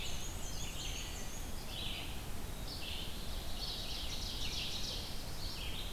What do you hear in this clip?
Black-and-white Warbler, Red-eyed Vireo, Ovenbird